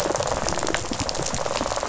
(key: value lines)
label: biophony, rattle response
recorder: SoundTrap 500